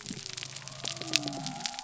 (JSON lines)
{"label": "biophony", "recorder": "SoundTrap 300"}